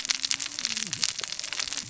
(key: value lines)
label: biophony, cascading saw
recorder: SoundTrap 600 or HydroMoth